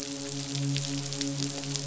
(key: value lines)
label: biophony, midshipman
recorder: SoundTrap 500